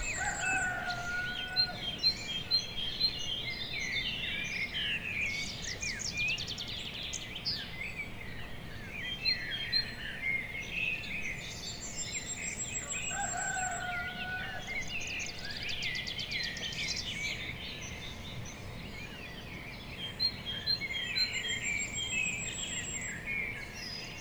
Is this in nature?
yes